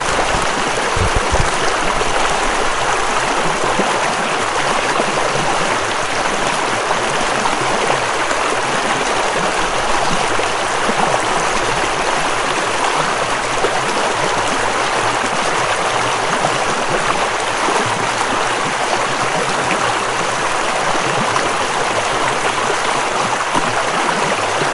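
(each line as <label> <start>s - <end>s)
Fast-moving water splashes continuously against rocks in a riverbed. 0.0s - 24.7s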